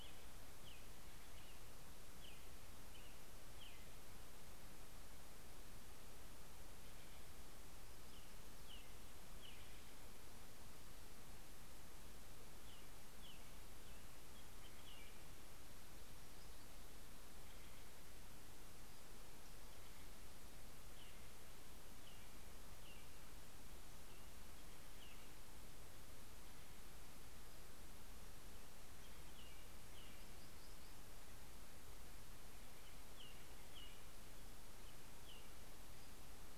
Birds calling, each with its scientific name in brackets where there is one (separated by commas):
American Robin (Turdus migratorius), Black-throated Gray Warbler (Setophaga nigrescens), Steller's Jay (Cyanocitta stelleri)